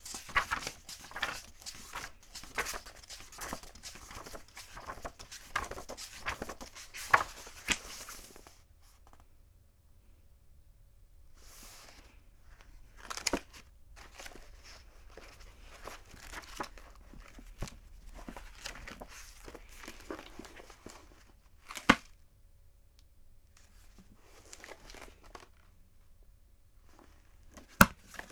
Is someone flipping pages?
yes